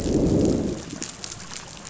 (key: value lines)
label: biophony, growl
recorder: SoundTrap 500